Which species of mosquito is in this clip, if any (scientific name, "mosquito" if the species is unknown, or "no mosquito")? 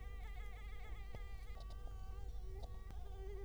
Culex quinquefasciatus